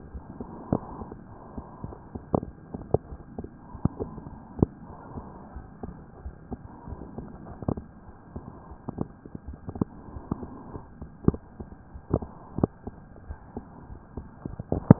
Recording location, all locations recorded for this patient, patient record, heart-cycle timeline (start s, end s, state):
aortic valve (AV)
aortic valve (AV)+pulmonary valve (PV)+tricuspid valve (TV)+mitral valve (MV)
#Age: Child
#Sex: Female
#Height: 116.0 cm
#Weight: 30.4 kg
#Pregnancy status: False
#Murmur: Absent
#Murmur locations: nan
#Most audible location: nan
#Systolic murmur timing: nan
#Systolic murmur shape: nan
#Systolic murmur grading: nan
#Systolic murmur pitch: nan
#Systolic murmur quality: nan
#Diastolic murmur timing: nan
#Diastolic murmur shape: nan
#Diastolic murmur grading: nan
#Diastolic murmur pitch: nan
#Diastolic murmur quality: nan
#Outcome: Normal
#Campaign: 2015 screening campaign
0.00	6.22	unannotated
6.22	6.34	S1
6.34	6.50	systole
6.50	6.64	S2
6.64	6.86	diastole
6.86	7.02	S1
7.02	7.15	systole
7.15	7.30	S2
7.30	7.45	diastole
7.45	7.56	S1
7.56	7.73	systole
7.73	7.86	S2
7.86	8.05	diastole
8.05	8.18	S1
8.18	8.33	systole
8.33	8.44	S2
8.44	8.67	diastole
8.67	8.80	S1
8.80	8.96	systole
8.96	9.10	S2
9.10	9.45	diastole
9.45	9.58	S1
9.58	9.74	systole
9.74	9.92	S2
9.92	10.12	diastole
10.12	10.22	S1
10.22	10.40	systole
10.40	10.52	S2
10.52	10.70	diastole
10.70	10.82	S1
10.82	10.98	systole
10.98	11.10	S2
11.10	12.54	unannotated
12.54	12.68	S1
12.68	12.84	systole
12.84	12.96	S2
12.96	13.26	diastole
13.26	13.38	S1
13.38	13.55	systole
13.55	13.66	S2
13.66	13.87	diastole
13.87	13.98	S1
13.98	14.14	systole
14.14	14.28	S2
14.28	14.45	diastole
14.45	14.57	S1
14.57	14.99	unannotated